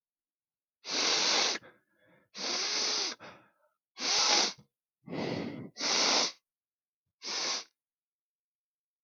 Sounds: Sniff